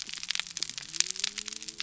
{"label": "biophony", "recorder": "SoundTrap 300"}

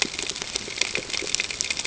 {"label": "ambient", "recorder": "HydroMoth"}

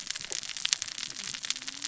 {"label": "biophony, cascading saw", "recorder": "SoundTrap 600 or HydroMoth"}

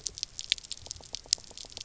{"label": "biophony, knock", "recorder": "SoundTrap 300"}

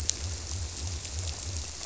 {"label": "biophony", "recorder": "SoundTrap 300"}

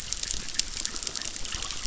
{"label": "biophony, chorus", "recorder": "SoundTrap 600"}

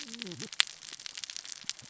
{"label": "biophony, cascading saw", "recorder": "SoundTrap 600 or HydroMoth"}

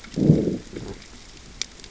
{"label": "biophony, growl", "recorder": "SoundTrap 600 or HydroMoth"}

